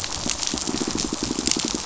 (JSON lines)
{"label": "biophony, pulse", "recorder": "SoundTrap 500"}